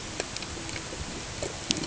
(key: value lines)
label: ambient
recorder: HydroMoth